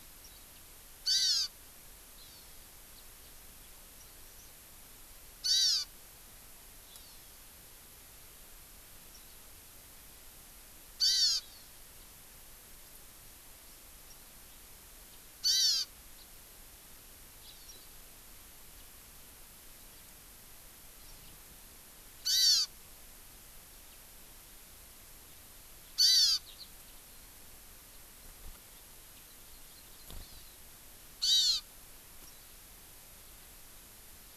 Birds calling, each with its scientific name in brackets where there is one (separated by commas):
Hawaii Amakihi (Chlorodrepanis virens), Warbling White-eye (Zosterops japonicus), Eurasian Skylark (Alauda arvensis)